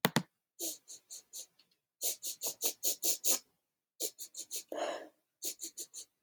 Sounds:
Sniff